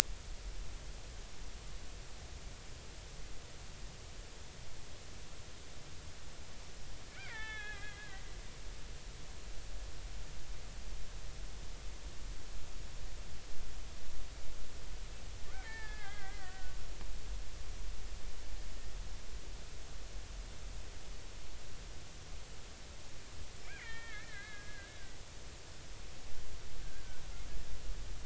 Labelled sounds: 7.1	8.1	killer whale, Bigg's (transient), 0.80 to 4.0 kHz
15.5	16.7	killer whale, Bigg's (transient), 0.83 to 2.4 kHz
23.6	25.0	killer whale, Bigg's (transient), 1.2 to 3.3 kHz
26.8	27.0	killer whale, Bigg's (transient), 1.5 to 1.7 kHz

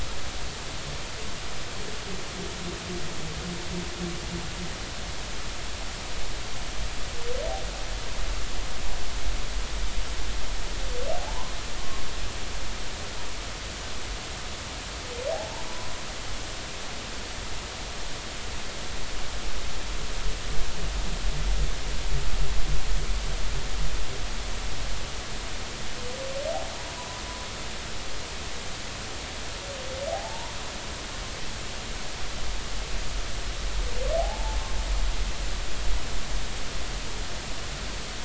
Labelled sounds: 11.2	11.5	humpback whale, 0.80 to 1.1 kHz
15.3	15.6	humpback whale, 0.80 to 1.0 kHz
27.0	27.2	humpback whale, 0.86 to 1.1 kHz
30.1	30.5	humpback whale, 0.80 to 1.0 kHz
34.2	34.6	humpback whale, 0.80 to 0.93 kHz

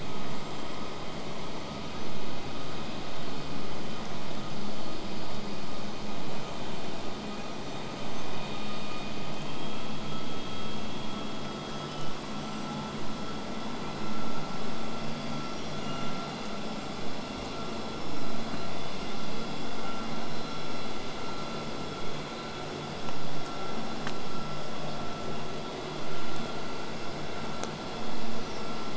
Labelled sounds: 1.7	2.3	killer whale, southern resident, whistle, 5.4 to 8.0 kHz
5.0	8.9	killer whale, southern resident, 7.5 to 8.0 kHz
11.5	12.9	killer whale, southern resident, 5.3 to 8.0 kHz

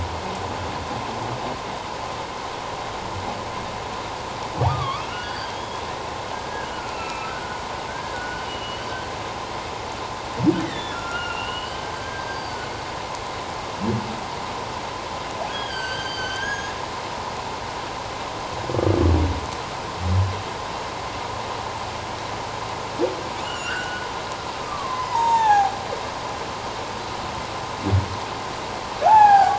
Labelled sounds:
4.7	5.8	humpback whale, 1.0 to 4.8 kHz
6.8	7.6	humpback whale, 1.2 to 2.8 kHz
7.9	8.9	humpback whale, 1.4 to 3.0 kHz
10.6	12.7	humpback whale, 1.3 to 4.8 kHz
15.5	16.7	humpback whale, 1.5 to 6.7 kHz
23.4	25.7	humpback whale, 0.78 to 7.5 kHz
29.0	29.5	humpback whale, 0.78 to 3.5 kHz

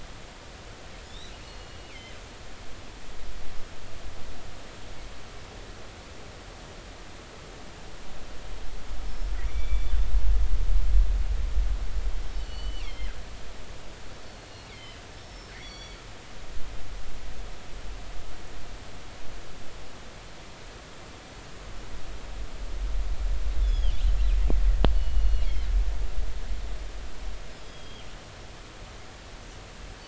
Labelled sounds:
1.1	1.3	killer whale, northern resident, G clan, 3.4 to 4.0 kHz
1.4	2.1	killer whale, northern resident, G clan, GG subclan, call N23ii, 2.0 to 4.4 kHz
9.1	9.9	killer whale, northern resident, G clan, GI subclan, call N23i, 2.1 to 5.9 kHz
12.3	13.1	killer whale, northern resident, G clan, GG subclan, call N23ii, 1.9 to 4.6 kHz
14.2	15.0	killer whale, northern resident, G clan, GG subclan, call N23ii, 2.0 to 4.5 kHz
15.2	16.0	killer whale, northern resident, G clan, GI subclan, call N23i, 2.2 to 5.8 kHz
23.6	23.9	killer whale, northern resident, G clan, GG subclan, call N28, 2.8 to 5.2 kHz
24.9	25.5	killer whale, northern resident, G clan, GG subclan, call N23ii, 2.8 to 4.5 kHz
27.6	28.1	killer whale, northern resident, G clan, GG subclan, call N23ii, 2.9 to 3.4 kHz

